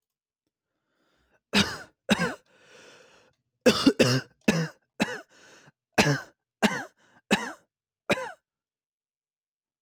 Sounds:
Cough